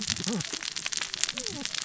{"label": "biophony, cascading saw", "recorder": "SoundTrap 600 or HydroMoth"}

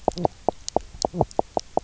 {"label": "biophony, knock croak", "recorder": "SoundTrap 300"}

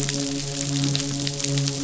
{"label": "biophony, midshipman", "recorder": "SoundTrap 500"}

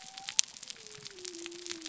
{"label": "biophony", "recorder": "SoundTrap 300"}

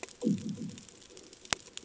{"label": "anthrophony, bomb", "recorder": "HydroMoth"}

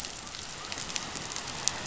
{"label": "biophony", "recorder": "SoundTrap 500"}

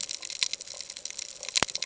{"label": "ambient", "recorder": "HydroMoth"}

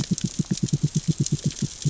{"label": "biophony, knock", "recorder": "SoundTrap 600 or HydroMoth"}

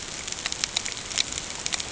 {"label": "ambient", "recorder": "HydroMoth"}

